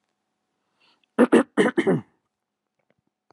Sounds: Throat clearing